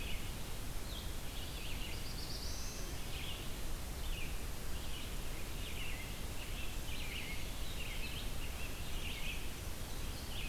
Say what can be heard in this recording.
Red-eyed Vireo, Black-throated Blue Warbler, American Robin